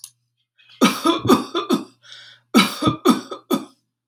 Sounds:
Cough